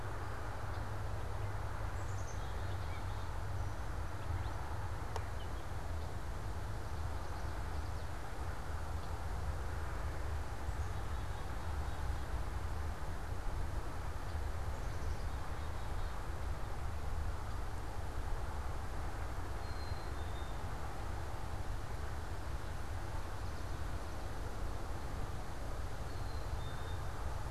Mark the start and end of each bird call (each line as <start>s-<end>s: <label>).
0.0s-3.4s: Black-capped Chickadee (Poecile atricapillus)
3.6s-6.2s: Gray Catbird (Dumetella carolinensis)
6.4s-8.3s: Common Yellowthroat (Geothlypis trichas)
8.9s-9.1s: Red-winged Blackbird (Agelaius phoeniceus)
10.6s-16.3s: Black-capped Chickadee (Poecile atricapillus)
19.5s-27.5s: Black-capped Chickadee (Poecile atricapillus)